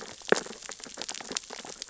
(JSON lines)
{"label": "biophony, sea urchins (Echinidae)", "recorder": "SoundTrap 600 or HydroMoth"}